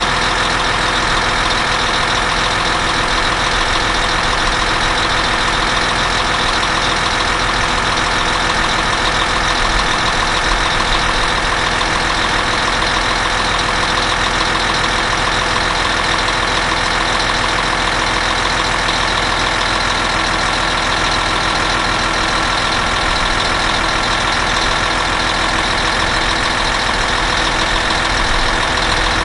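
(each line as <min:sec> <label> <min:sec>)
0:00.0 Continuous low whirring of a truck engine. 0:29.2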